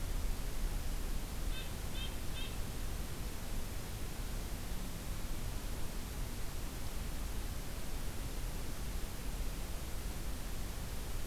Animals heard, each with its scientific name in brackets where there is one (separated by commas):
Red-breasted Nuthatch (Sitta canadensis)